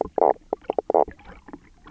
{"label": "biophony, knock croak", "recorder": "SoundTrap 300"}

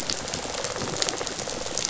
{"label": "biophony, rattle response", "recorder": "SoundTrap 500"}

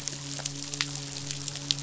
{"label": "biophony, midshipman", "recorder": "SoundTrap 500"}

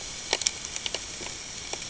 {"label": "ambient", "recorder": "HydroMoth"}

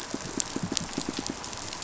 {"label": "biophony, pulse", "recorder": "SoundTrap 500"}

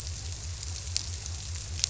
{"label": "biophony", "recorder": "SoundTrap 300"}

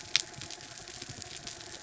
{"label": "anthrophony, mechanical", "recorder": "SoundTrap 300"}
{"label": "biophony", "recorder": "SoundTrap 300"}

